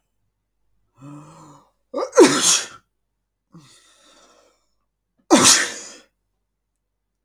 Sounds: Sneeze